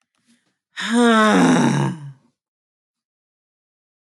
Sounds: Sigh